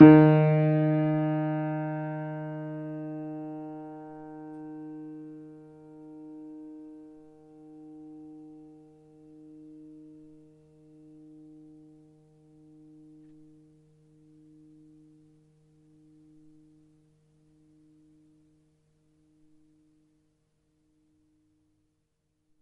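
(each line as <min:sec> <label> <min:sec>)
0:00.0 A single piano key is played and its sound steadily decreases. 0:22.6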